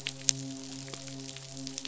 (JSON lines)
{"label": "biophony, midshipman", "recorder": "SoundTrap 500"}